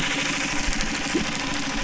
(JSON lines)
{"label": "anthrophony, boat engine", "recorder": "SoundTrap 300"}